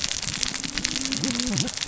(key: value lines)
label: biophony, cascading saw
recorder: SoundTrap 600 or HydroMoth